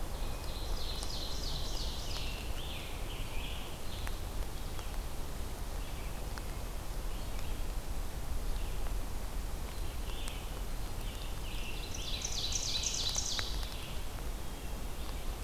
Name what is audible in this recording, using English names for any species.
Ovenbird, Scarlet Tanager, Red-eyed Vireo, Hermit Thrush